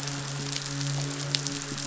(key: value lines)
label: biophony, midshipman
recorder: SoundTrap 500

label: biophony
recorder: SoundTrap 500